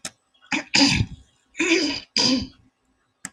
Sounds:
Throat clearing